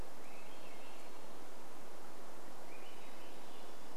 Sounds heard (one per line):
Hermit Thrush song
Swainson's Thrush song